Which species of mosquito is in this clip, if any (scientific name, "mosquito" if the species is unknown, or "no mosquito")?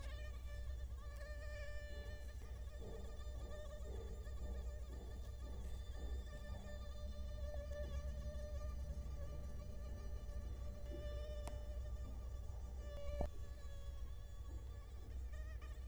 Culex quinquefasciatus